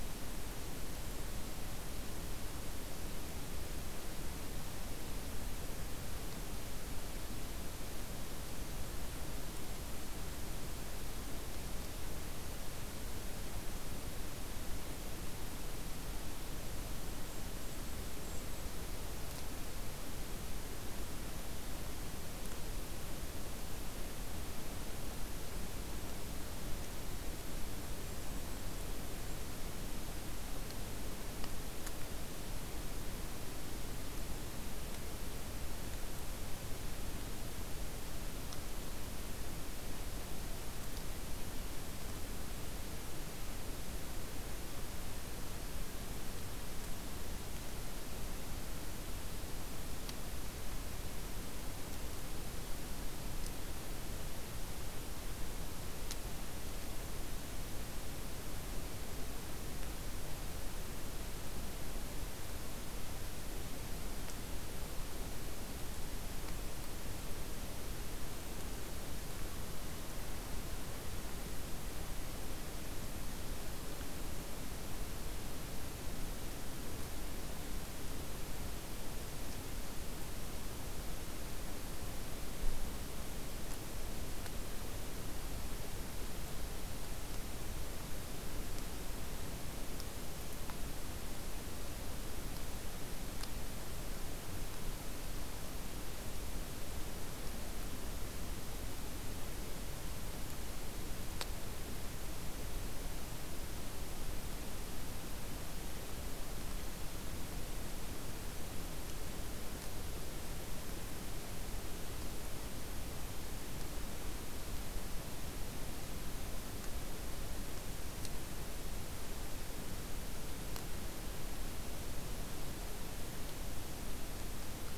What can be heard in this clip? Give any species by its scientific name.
Regulus satrapa